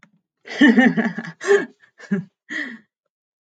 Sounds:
Laughter